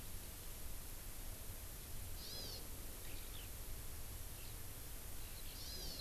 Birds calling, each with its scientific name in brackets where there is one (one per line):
Eurasian Skylark (Alauda arvensis)
Hawaii Amakihi (Chlorodrepanis virens)